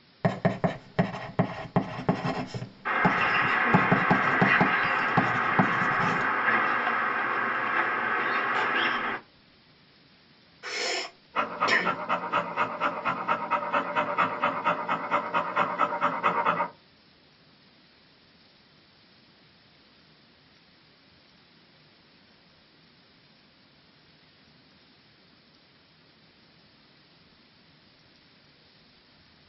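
At 0.22 seconds, writing is heard. As that goes on, at 2.85 seconds, a bird can be heard. Then at 10.62 seconds, there is breathing. Over it, at 11.34 seconds, you can hear a dog. A constant faint background noise remains about 30 decibels below the sounds.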